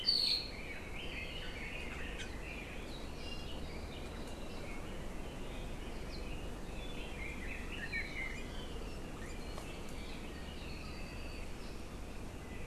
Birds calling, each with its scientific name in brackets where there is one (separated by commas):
Apapane (Himatione sanguinea), Red-billed Leiothrix (Leiothrix lutea)